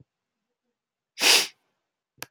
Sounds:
Sniff